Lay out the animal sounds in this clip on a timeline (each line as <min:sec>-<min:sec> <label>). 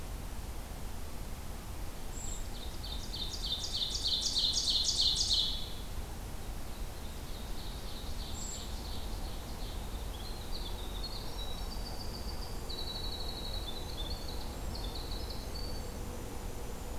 0:02.0-0:02.5 Brown Creeper (Certhia americana)
0:02.2-0:05.8 Ovenbird (Seiurus aurocapilla)
0:06.6-0:09.9 Ovenbird (Seiurus aurocapilla)
0:08.3-0:08.8 Brown Creeper (Certhia americana)
0:10.2-0:17.0 Winter Wren (Troglodytes hiemalis)